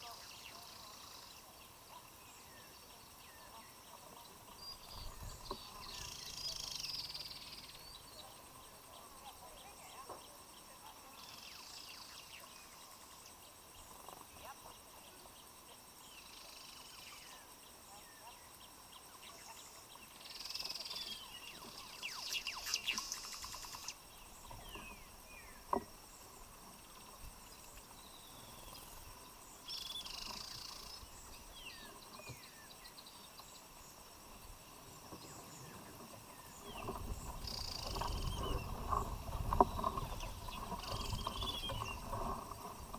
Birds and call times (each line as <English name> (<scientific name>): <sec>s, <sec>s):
Cinnamon-chested Bee-eater (Merops oreobates): 4.5s
White-headed Woodhoopoe (Phoeniculus bollei): 6.6s, 16.5s
Gray Apalis (Apalis cinerea): 18.5s
Spectacled Weaver (Ploceus ocularis): 21.1s, 28.4s, 41.4s